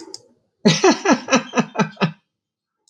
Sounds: Laughter